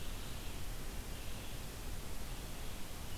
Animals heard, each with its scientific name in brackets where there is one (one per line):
Ovenbird (Seiurus aurocapilla)